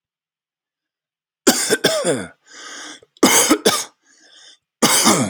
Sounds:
Cough